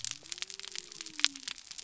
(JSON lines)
{"label": "biophony", "recorder": "SoundTrap 300"}